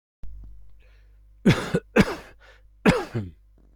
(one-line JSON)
{"expert_labels": [{"quality": "good", "cough_type": "dry", "dyspnea": false, "wheezing": false, "stridor": false, "choking": false, "congestion": false, "nothing": true, "diagnosis": "healthy cough", "severity": "pseudocough/healthy cough"}], "age": 52, "gender": "male", "respiratory_condition": true, "fever_muscle_pain": true, "status": "symptomatic"}